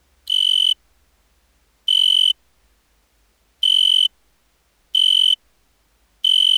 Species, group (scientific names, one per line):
Oecanthus pellucens
Orthoptera